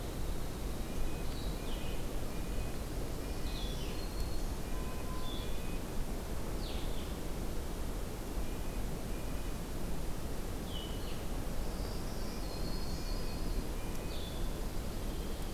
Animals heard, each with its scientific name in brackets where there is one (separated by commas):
Yellow-rumped Warbler (Setophaga coronata), Red-breasted Nuthatch (Sitta canadensis), Dark-eyed Junco (Junco hyemalis), Black-throated Green Warbler (Setophaga virens), Blue-headed Vireo (Vireo solitarius)